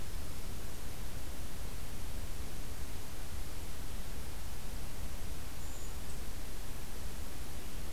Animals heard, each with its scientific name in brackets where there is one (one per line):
Brown Creeper (Certhia americana)
Black-throated Green Warbler (Setophaga virens)